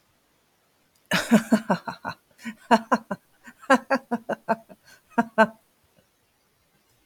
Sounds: Laughter